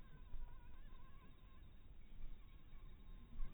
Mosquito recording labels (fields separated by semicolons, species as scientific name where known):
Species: mosquito; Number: one; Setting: cup